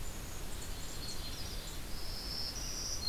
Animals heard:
Yellow-rumped Warbler (Setophaga coronata), Black-capped Chickadee (Poecile atricapillus), Black-throated Green Warbler (Setophaga virens)

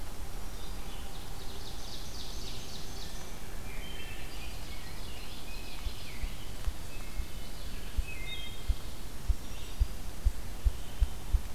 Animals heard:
Black-throated Green Warbler (Setophaga virens), Red-eyed Vireo (Vireo olivaceus), Rose-breasted Grosbeak (Pheucticus ludovicianus), Wood Thrush (Hylocichla mustelina), Ovenbird (Seiurus aurocapilla), Ruffed Grouse (Bonasa umbellus)

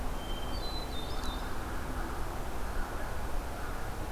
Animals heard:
American Crow (Corvus brachyrhynchos), Hermit Thrush (Catharus guttatus)

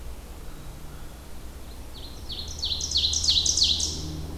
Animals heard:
American Crow (Corvus brachyrhynchos), Black-capped Chickadee (Poecile atricapillus), Ovenbird (Seiurus aurocapilla)

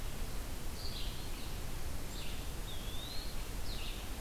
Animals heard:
Eastern Wood-Pewee (Contopus virens), Red-eyed Vireo (Vireo olivaceus)

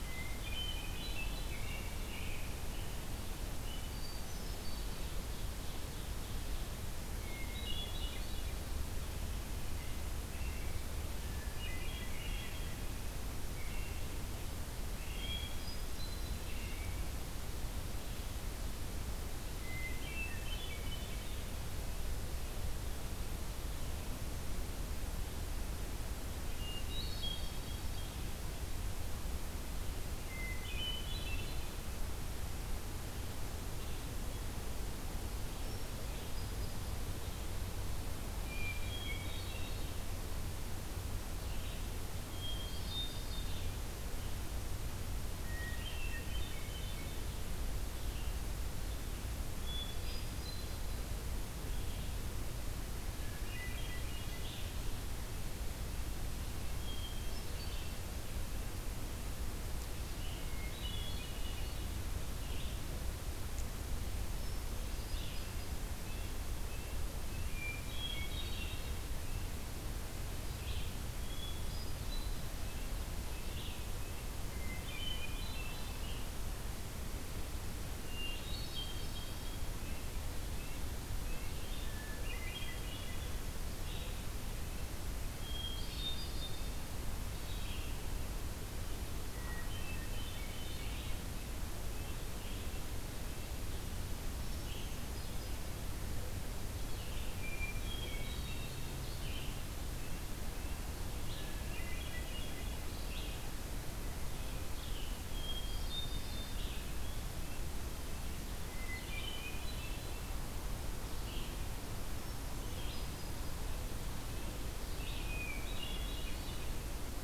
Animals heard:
Red-breasted Nuthatch (Sitta canadensis), American Robin (Turdus migratorius), Red-eyed Vireo (Vireo olivaceus), Hermit Thrush (Catharus guttatus), Ovenbird (Seiurus aurocapilla)

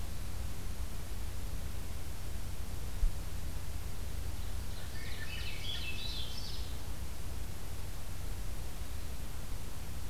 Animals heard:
Swainson's Thrush (Catharus ustulatus), Ovenbird (Seiurus aurocapilla)

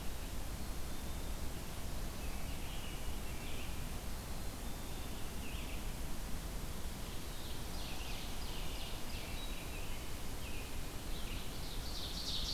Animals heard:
Ovenbird (Seiurus aurocapilla), American Robin (Turdus migratorius), Red-eyed Vireo (Vireo olivaceus), Black-capped Chickadee (Poecile atricapillus)

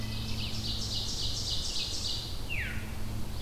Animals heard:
Red-eyed Vireo (Vireo olivaceus), Ovenbird (Seiurus aurocapilla), Veery (Catharus fuscescens)

